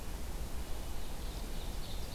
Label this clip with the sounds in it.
Ovenbird